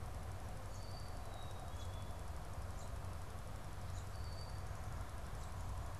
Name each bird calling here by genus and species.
unidentified bird, Poecile atricapillus